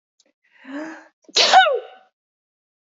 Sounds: Sneeze